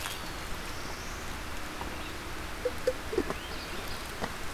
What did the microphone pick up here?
Black-throated Blue Warbler, Swainson's Thrush